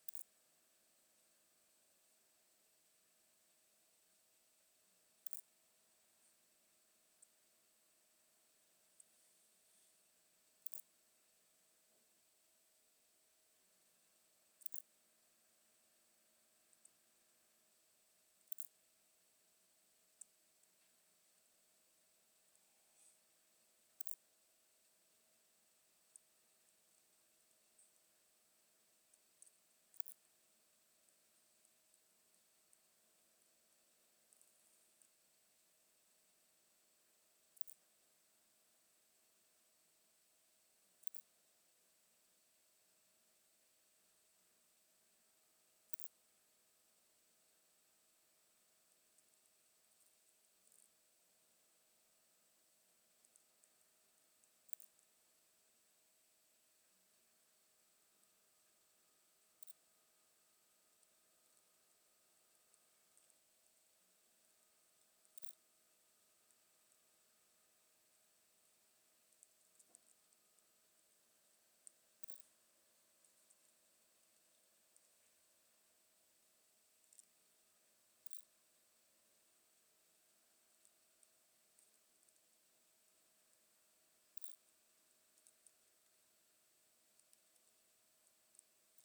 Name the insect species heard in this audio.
Poecilimon tessellatus